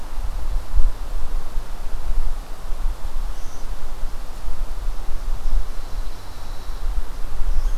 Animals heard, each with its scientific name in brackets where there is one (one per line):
Red Squirrel (Tamiasciurus hudsonicus)
Pine Warbler (Setophaga pinus)